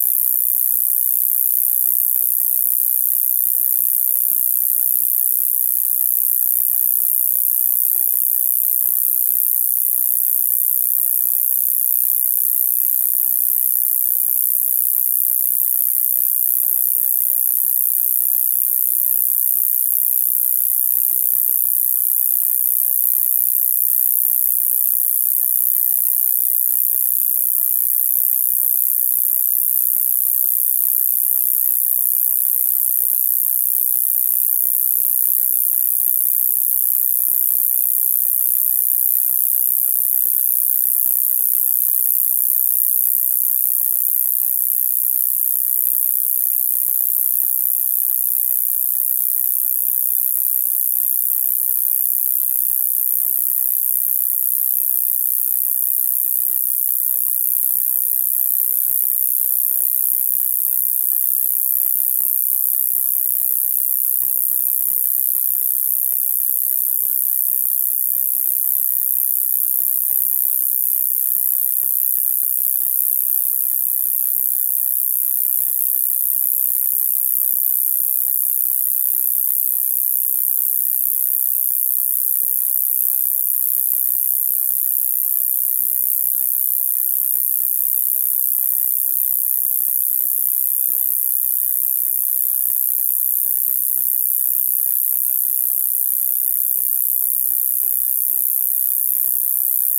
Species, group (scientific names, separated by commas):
Gampsocleis glabra, Orthoptera